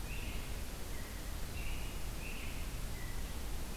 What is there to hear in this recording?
American Robin